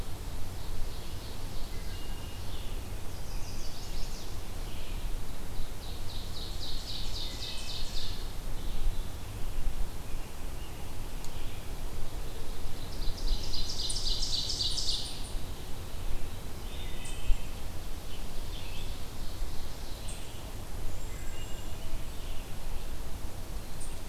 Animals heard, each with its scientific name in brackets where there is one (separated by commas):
Scarlet Tanager (Piranga olivacea), Ovenbird (Seiurus aurocapilla), Wood Thrush (Hylocichla mustelina), Cedar Waxwing (Bombycilla cedrorum), Chestnut-sided Warbler (Setophaga pensylvanica)